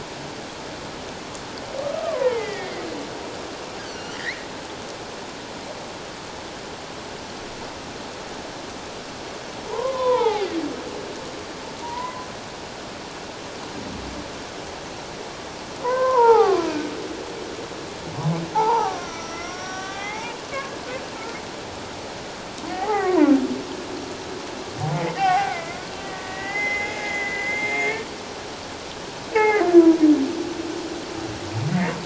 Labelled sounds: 1.9	2.8	humpback whale, 0.81 to 2.4 kHz
3.9	4.5	humpback whale, 1.7 to 6.2 kHz
9.7	10.5	humpback whale, 0.78 to 3.6 kHz
11.8	12.3	humpback whale, 0.91 to 2.1 kHz
15.8	16.7	humpback whale, 0.78 to 2.3 kHz
18.5	20.4	humpback whale, 0.78 to 5.9 kHz
22.7	23.3	humpback whale, 0.78 to 2.1 kHz
24.8	28.1	humpback whale, 0.78 to 2.7 kHz
29.3	29.6	humpback whale, 0.78 to 2.8 kHz

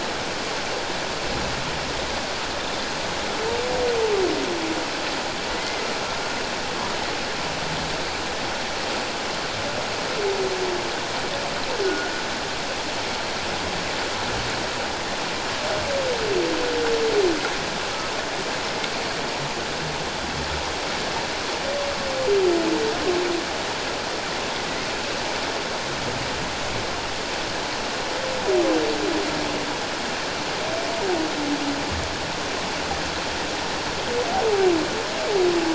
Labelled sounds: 5.5	5.9	humpback whale, 1.9 to 2.2 kHz
11.8	12.1	humpback whale, 1.4 to 1.5 kHz

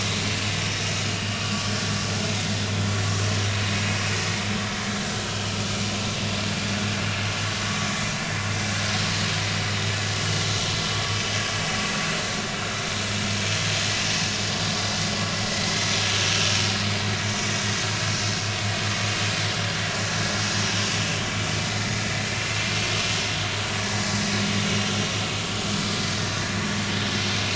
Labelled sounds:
21.6	21.9	vessel noise, 2.0 to 2.1 kHz

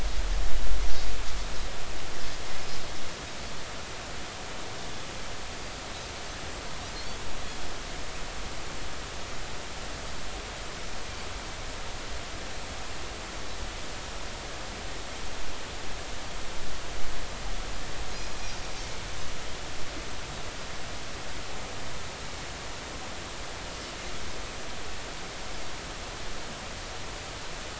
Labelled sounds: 18.3	18.6	Pacific white-sided dolphin, 5.6 to 5.8 kHz

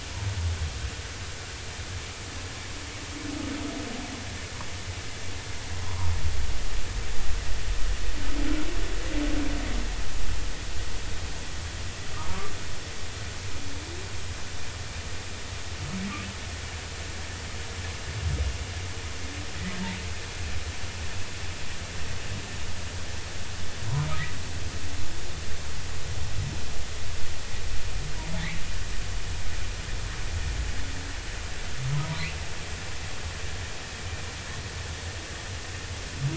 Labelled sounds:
6.8	7.1	humpback whale, 0.86 to 1.2 kHz
31.9	32.3	humpback whale, 0.93 to 1.1 kHz

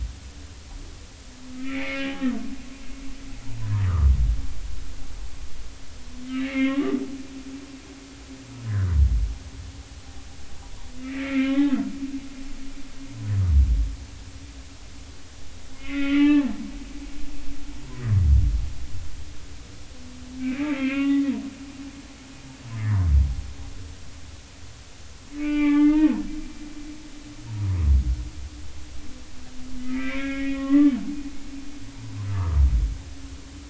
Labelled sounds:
1.6	2.2	humpback whale, 1.2 to 2.6 kHz
3.6	4.1	humpback whale, 0.99 to 2.0 kHz
6.3	7.0	humpback whale, 1.0 to 3.0 kHz
8.7	8.9	humpback whale, 1.3 to 2.0 kHz
11.0	11.7	humpback whale, 1.3 to 3.5 kHz
15.7	16.5	humpback whale, 0.83 to 3.5 kHz
17.1	17.4	humpback whale, 2.2 to 2.4 kHz
20.4	21.3	humpback whale, 1.1 to 3.7 kHz
25.4	26.1	humpback whale, 0.80 to 3.0 kHz
27.5	27.8	humpback whale, 0.90 to 1.1 kHz
29.8	30.9	humpback whale, 1.0 to 3.4 kHz

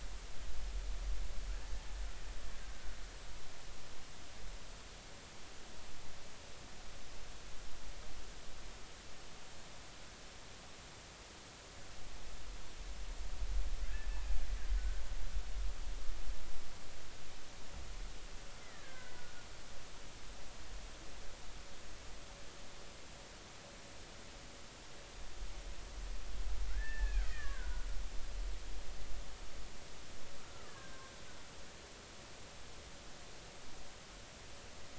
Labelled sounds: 14.1	14.4	killer whale, Bigg's (transient), 2.4 to 2.7 kHz
14.7	15.0	killer whale, Bigg's (transient), 1.4 to 1.6 kHz
18.6	19.1	killer whale, Bigg's (transient), 1.4 to 2.1 kHz
26.7	27.9	killer whale, Bigg's (transient), 0.93 to 2.0 kHz
30.4	31.0	killer whale, Bigg's (transient), 1.0 to 1.8 kHz

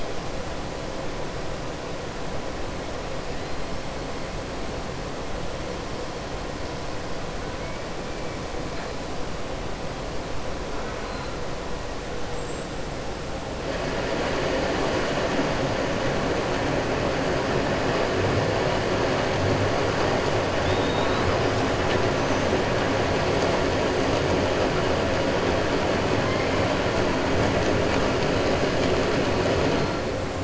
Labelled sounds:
26.2	26.7	killer whale, southern resident, 1.1 to 3.1 kHz

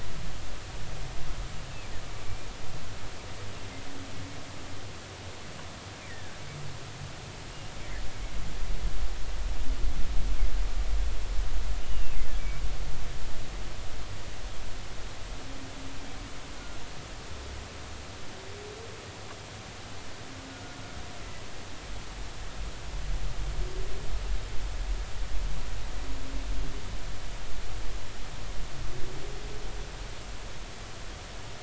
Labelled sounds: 6.1	6.4	humpback whale, 1.5 to 2.0 kHz
11.8	12.2	humpback whale, 2.5 to 3.0 kHz

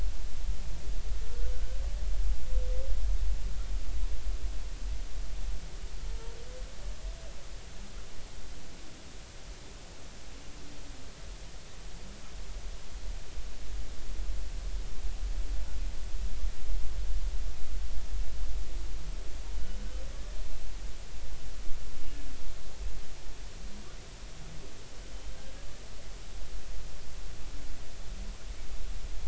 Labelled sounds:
1.5	1.8	humpback whale, 1.5 to 1.6 kHz
19.5	19.8	humpback whale, 2.9 to 3.1 kHz

